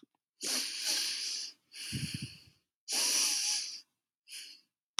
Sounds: Sniff